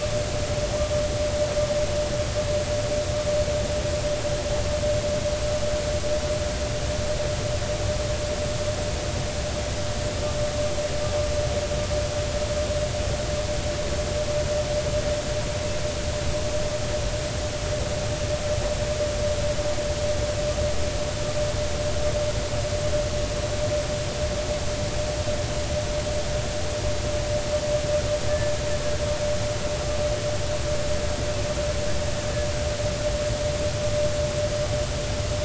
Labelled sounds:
28.3	28.5	killer whale, Bigg's (transient), 1.7 to 1.8 kHz

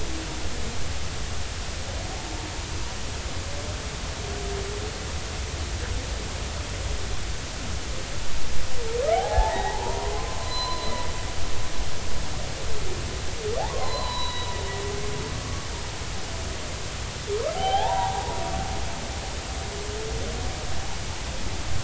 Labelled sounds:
9.1	10.9	humpback whale, 0.80 to 4.2 kHz
13.6	14.5	humpback whale, 0.80 to 4.2 kHz
15.3	15.7	humpback whale, 1.1 to 1.2 kHz
17.5	18.4	humpback whale, 0.80 to 3.5 kHz

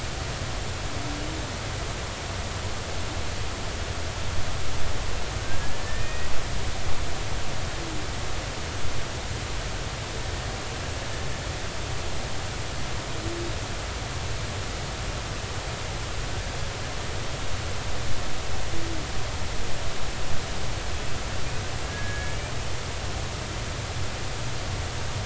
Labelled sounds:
5.8	6.3	humpback whale, 1.7 to 2.6 kHz
21.9	22.5	humpback whale, 1.6 to 2.4 kHz

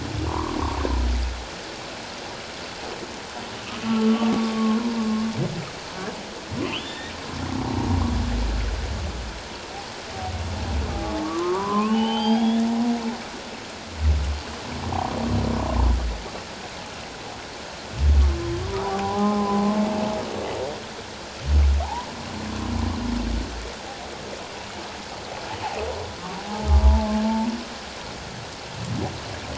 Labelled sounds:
0.3	0.6	humpback whale, 0.91 to 1.3 kHz
3.8	4.8	humpback whale, 1.0 to 1.2 kHz
6.7	7.1	humpback whale, 1.7 to 3.8 kHz
10.9	12.6	humpback whale, 0.78 to 5.0 kHz
18.7	19.6	humpback whale, 0.78 to 1.3 kHz
21.8	22.1	humpback whale, 0.78 to 1.1 kHz
27.2	27.5	humpback whale, 0.84 to 0.97 kHz

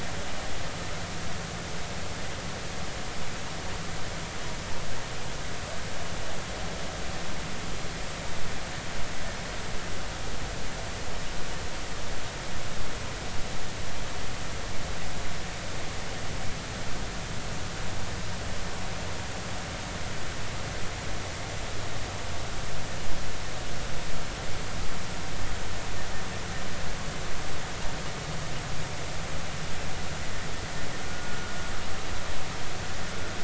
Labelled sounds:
31.1	31.4	vessel noise, 1.4 to 1.5 kHz

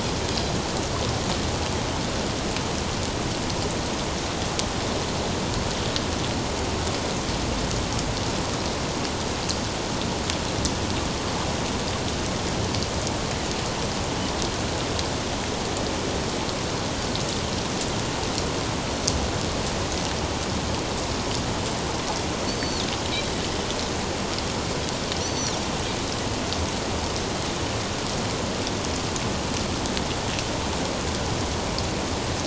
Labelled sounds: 22.5	22.8	Pacific white-sided dolphin, 4.2 to 4.7 kHz
25.2	25.6	Pacific white-sided dolphin, 4.2 to 6.1 kHz

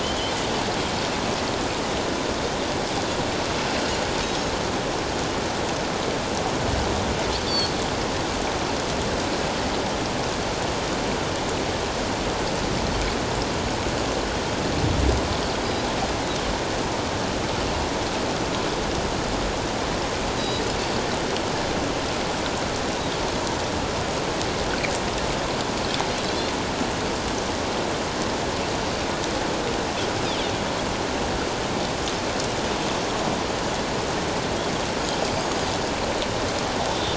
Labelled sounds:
7.5	7.7	Pacific white-sided dolphin, 4.2 to 4.7 kHz
20.4	20.7	Pacific white-sided dolphin, 3.8 to 5.0 kHz
35.4	35.7	Pacific white-sided dolphin, 6.4 to 6.7 kHz
36.9	37.1	Pacific white-sided dolphin, 3.4 to 3.8 kHz

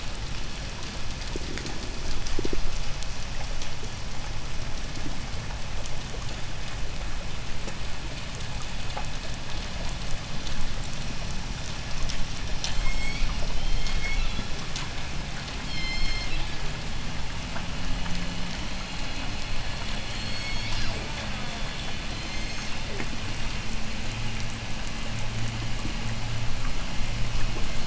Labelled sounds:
12.4	14.6	killer whale, southern resident, J pod, 1.7 to 8.0 kHz
15.3	16.7	killer whale, southern resident, J pod, 1.9 to 8.0 kHz
19.7	21.4	killer whale, southern resident, J pod, 1.9 to 8.0 kHz
20.6	22.0	killer whale, southern resident, J pod, call S04, 0.29 to 2.2 kHz
21.8	23.1	killer whale, southern resident, J pod, 1.6 to 8.0 kHz

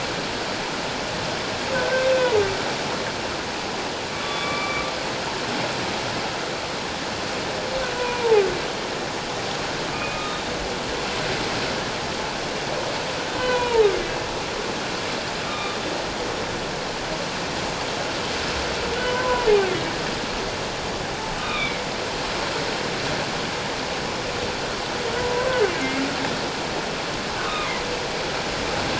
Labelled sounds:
1.7	2.1	humpback whale, 1.5 to 1.6 kHz
4.1	4.8	humpback whale, 1.0 to 3.5 kHz
8.0	8.4	humpback whale, 0.78 to 2.5 kHz
9.9	10.4	humpback whale, 1.2 to 3.8 kHz
13.3	13.9	humpback whale, 0.81 to 4.1 kHz
15.4	15.8	humpback whale, 1.2 to 3.8 kHz
18.9	19.5	humpback whale, 0.94 to 1.6 kHz
21.4	21.8	humpback whale, 1.1 to 3.8 kHz
27.4	27.7	humpback whale, 1.1 to 1.3 kHz

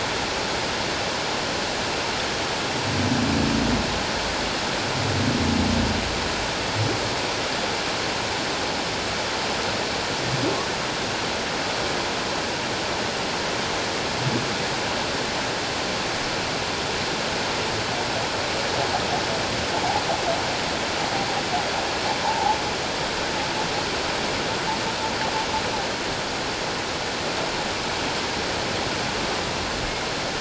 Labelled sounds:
22.2	22.6	humpback whale, 0.78 to 1.0 kHz

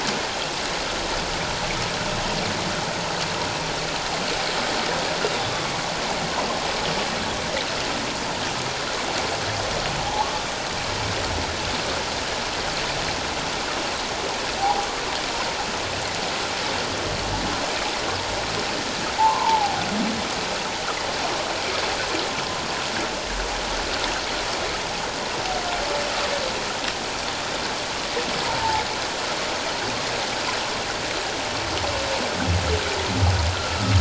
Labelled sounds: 10.0	10.3	humpback whale, 0.78 to 0.97 kHz
14.6	14.9	humpback whale, 0.78 to 1.0 kHz
19.2	19.8	humpback whale, 0.78 to 1.2 kHz
28.6	28.8	humpback whale, 0.78 to 0.97 kHz
33.5	34.0	humpback whale, 1.2 to 1.5 kHz

